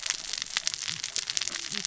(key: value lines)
label: biophony, cascading saw
recorder: SoundTrap 600 or HydroMoth